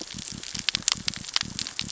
{"label": "biophony", "recorder": "SoundTrap 600 or HydroMoth"}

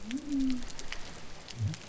{"label": "biophony", "recorder": "SoundTrap 300"}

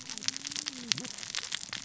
{"label": "biophony, cascading saw", "recorder": "SoundTrap 600 or HydroMoth"}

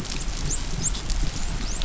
{"label": "biophony, dolphin", "recorder": "SoundTrap 500"}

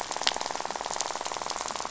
{"label": "biophony, rattle", "recorder": "SoundTrap 500"}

